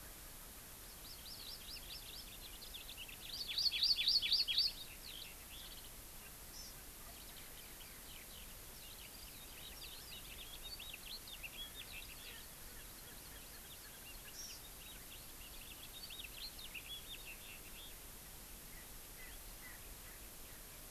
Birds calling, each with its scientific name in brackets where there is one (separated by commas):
House Finch (Haemorhous mexicanus), Erckel's Francolin (Pternistis erckelii), Hawaii Amakihi (Chlorodrepanis virens)